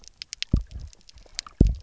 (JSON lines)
{"label": "biophony, double pulse", "recorder": "SoundTrap 300"}